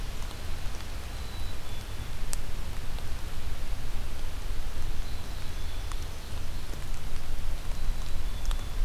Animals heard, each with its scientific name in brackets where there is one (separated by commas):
Black-capped Chickadee (Poecile atricapillus), Ovenbird (Seiurus aurocapilla)